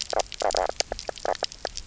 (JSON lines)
{"label": "biophony, knock croak", "recorder": "SoundTrap 300"}